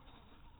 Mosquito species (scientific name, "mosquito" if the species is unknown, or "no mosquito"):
mosquito